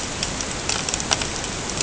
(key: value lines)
label: ambient
recorder: HydroMoth